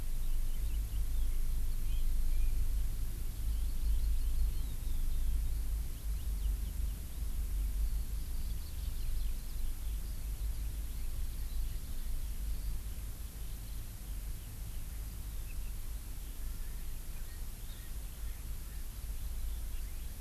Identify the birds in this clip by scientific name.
Chlorodrepanis virens, Pternistis erckelii